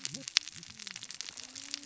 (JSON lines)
{"label": "biophony, cascading saw", "recorder": "SoundTrap 600 or HydroMoth"}